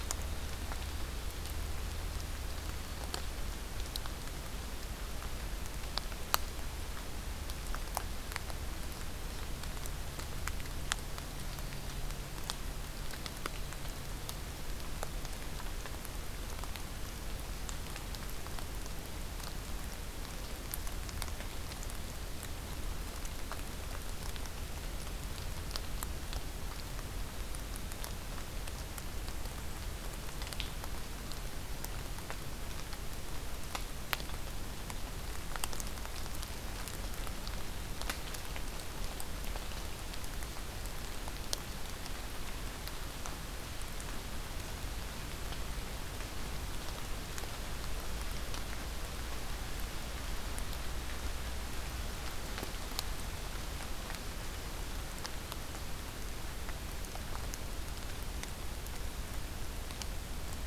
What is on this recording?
forest ambience